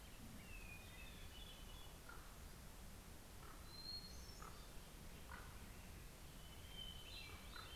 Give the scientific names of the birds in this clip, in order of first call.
Leiothlypis celata, Catharus guttatus, Corvus corax